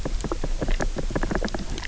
{"label": "biophony", "recorder": "SoundTrap 300"}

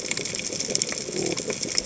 {"label": "biophony", "recorder": "HydroMoth"}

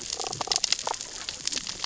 {"label": "biophony, damselfish", "recorder": "SoundTrap 600 or HydroMoth"}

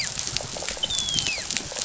{"label": "biophony, dolphin", "recorder": "SoundTrap 500"}
{"label": "biophony, rattle response", "recorder": "SoundTrap 500"}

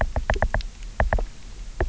{"label": "biophony, knock", "recorder": "SoundTrap 300"}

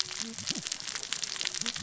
{"label": "biophony, cascading saw", "recorder": "SoundTrap 600 or HydroMoth"}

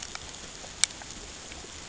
{"label": "ambient", "recorder": "HydroMoth"}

